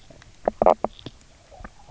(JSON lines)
{"label": "biophony, knock croak", "recorder": "SoundTrap 300"}